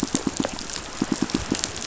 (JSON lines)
{"label": "biophony, pulse", "recorder": "SoundTrap 500"}